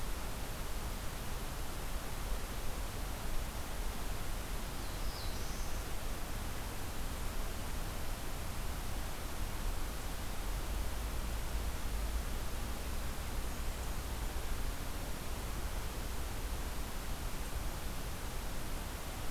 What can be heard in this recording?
Black-throated Blue Warbler, Blackburnian Warbler